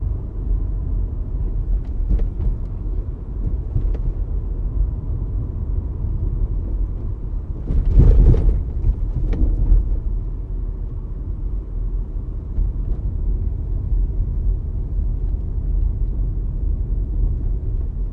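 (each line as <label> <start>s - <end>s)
The muffled sound of a car in motion is heard from inside the cabin. 0.0s - 18.1s
Soft shuffling noises of movement or adjusting inside a car. 7.5s - 10.4s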